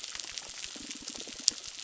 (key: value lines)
label: biophony
recorder: SoundTrap 600

label: biophony, crackle
recorder: SoundTrap 600